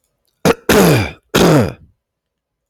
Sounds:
Throat clearing